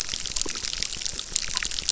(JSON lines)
{"label": "biophony, crackle", "recorder": "SoundTrap 600"}